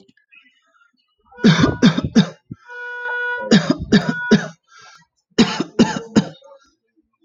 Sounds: Cough